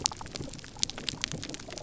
{"label": "biophony", "recorder": "SoundTrap 300"}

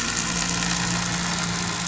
{"label": "anthrophony, boat engine", "recorder": "SoundTrap 500"}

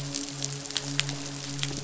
{"label": "biophony, midshipman", "recorder": "SoundTrap 500"}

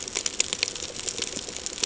{"label": "ambient", "recorder": "HydroMoth"}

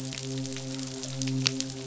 {"label": "biophony, midshipman", "recorder": "SoundTrap 500"}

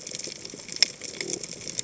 {"label": "biophony", "recorder": "HydroMoth"}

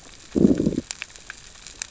{"label": "biophony, growl", "recorder": "SoundTrap 600 or HydroMoth"}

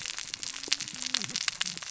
{"label": "biophony, cascading saw", "recorder": "SoundTrap 600 or HydroMoth"}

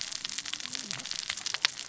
{"label": "biophony, cascading saw", "recorder": "SoundTrap 600 or HydroMoth"}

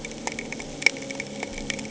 {"label": "anthrophony, boat engine", "recorder": "HydroMoth"}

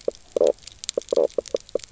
{"label": "biophony, knock croak", "recorder": "SoundTrap 300"}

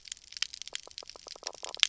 {"label": "biophony, knock croak", "recorder": "SoundTrap 300"}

